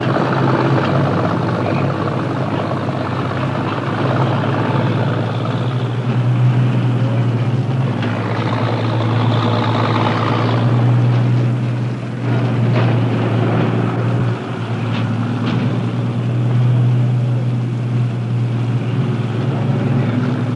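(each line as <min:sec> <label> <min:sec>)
0:00.0 A loud, deep, muffled truck engine rumbling with irregular patterns. 0:20.6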